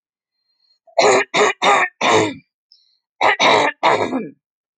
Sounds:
Throat clearing